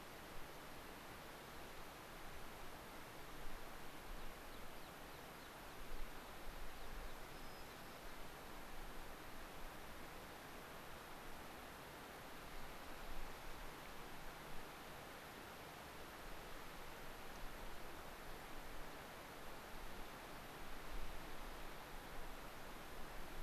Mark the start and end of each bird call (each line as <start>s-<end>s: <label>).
4.1s-7.2s: American Pipit (Anthus rubescens)
7.3s-8.3s: White-crowned Sparrow (Zonotrichia leucophrys)
17.3s-17.5s: Dark-eyed Junco (Junco hyemalis)